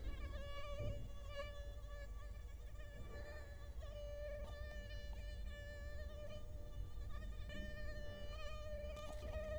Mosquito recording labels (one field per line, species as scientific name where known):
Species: Culex quinquefasciatus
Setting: cup